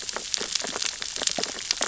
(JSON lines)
{"label": "biophony, sea urchins (Echinidae)", "recorder": "SoundTrap 600 or HydroMoth"}